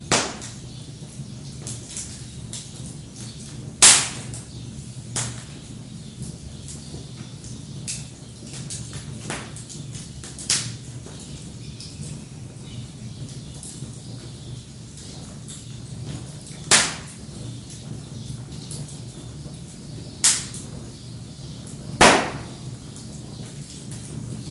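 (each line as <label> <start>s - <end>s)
The warm crackling of burning wood in a fireplace, with occasional pops and sparks from the flames. 0.0s - 24.5s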